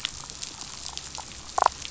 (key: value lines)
label: biophony, damselfish
recorder: SoundTrap 500